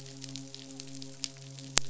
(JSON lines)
{"label": "biophony, midshipman", "recorder": "SoundTrap 500"}